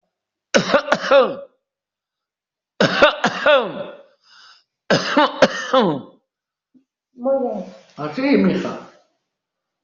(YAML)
expert_labels:
- quality: good
  cough_type: dry
  dyspnea: false
  wheezing: false
  stridor: false
  choking: false
  congestion: false
  nothing: true
  diagnosis: upper respiratory tract infection
  severity: mild
age: 89
gender: male
respiratory_condition: false
fever_muscle_pain: false
status: COVID-19